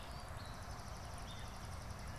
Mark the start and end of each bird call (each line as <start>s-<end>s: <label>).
0.0s-2.2s: Gray Catbird (Dumetella carolinensis)
0.4s-2.2s: Swamp Sparrow (Melospiza georgiana)